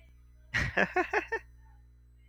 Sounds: Laughter